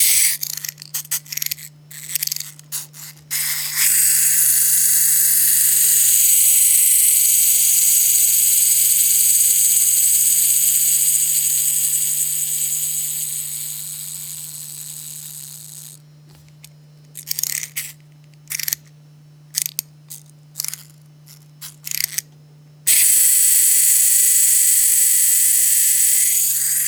Was something being wind-up?
yes